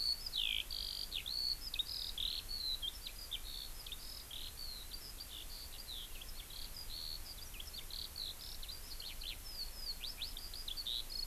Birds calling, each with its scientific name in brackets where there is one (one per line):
Eurasian Skylark (Alauda arvensis)